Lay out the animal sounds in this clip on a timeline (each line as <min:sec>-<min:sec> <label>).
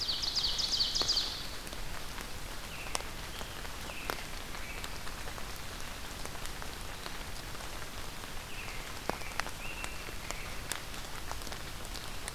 0:00.0-0:01.7 Ovenbird (Seiurus aurocapilla)
0:02.6-0:05.0 American Robin (Turdus migratorius)
0:08.4-0:10.6 American Robin (Turdus migratorius)